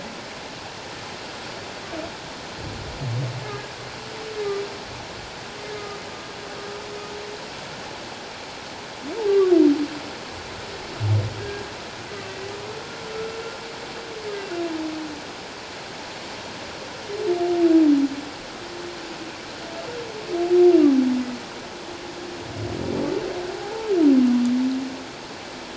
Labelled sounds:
3.4	3.7	humpback whale, 1.6 to 1.7 kHz
5.7	6.0	humpback whale, 1.2 to 1.3 kHz
9.3	9.5	humpback whale, 1.1 to 1.2 kHz
11.4	11.7	humpback whale, 1.5 to 1.7 kHz
13.1	13.4	humpback whale, 1.3 to 1.4 kHz
23.6	23.9	humpback whale, 0.78 to 0.94 kHz

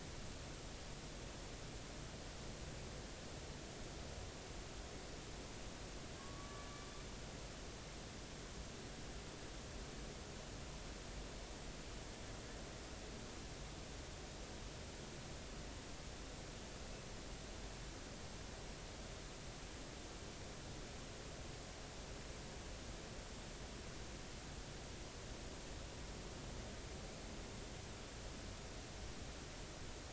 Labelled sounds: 6.2	6.7	killer whale, Bigg's (transient), 1.1 to 1.8 kHz

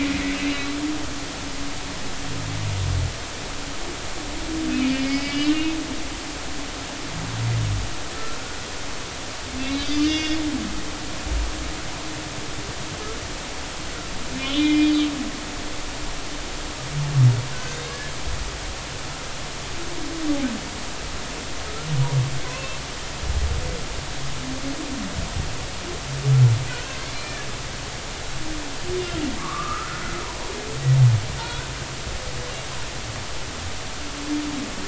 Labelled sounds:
0.0	0.7	humpback whale, 2.0 to 4.0 kHz
5.0	5.7	humpback whale, 1.9 to 5.2 kHz
9.8	10.4	humpback whale, 1.8 to 6.0 kHz
14.4	14.9	humpback whale, 2.0 to 3.7 kHz
17.5	18.1	humpback whale, 1.4 to 1.8 kHz
22.5	22.8	humpback whale, 2.5 to 2.7 kHz
27.1	27.4	humpback whale, 2.3 to 2.4 kHz
29.4	30.5	humpback whale, 0.90 to 1.5 kHz
31.4	31.7	humpback whale, 1.3 to 1.6 kHz

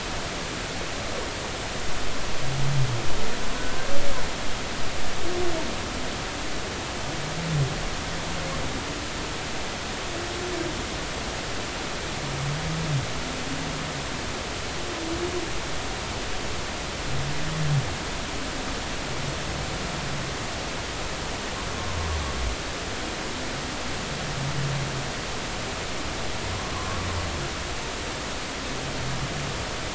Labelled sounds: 3.5	3.9	humpback whale, 1.5 to 1.6 kHz
26.7	27.1	humpback whale, 0.99 to 1.2 kHz

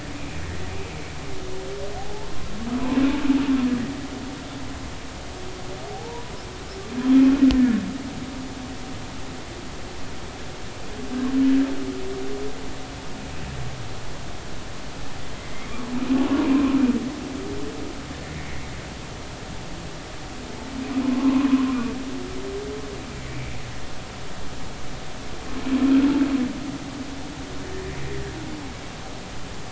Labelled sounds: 0.2	0.4	humpback whale, 2.3 to 2.5 kHz
1.9	2.3	humpback whale, 0.80 to 0.93 kHz
5.9	6.3	humpback whale, 0.80 to 1.0 kHz
7.5	7.8	humpback whale, 1.6 to 1.9 kHz
15.4	15.7	humpback whale, 2.0 to 2.3 kHz
18.4	18.7	humpback whale, 1.9 to 2.3 kHz
21.0	21.6	humpback whale, 0.90 to 1.2 kHz
23.3	23.6	humpback whale, 2.2 to 2.5 kHz

